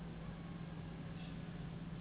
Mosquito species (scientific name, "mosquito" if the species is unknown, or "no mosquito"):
Anopheles gambiae s.s.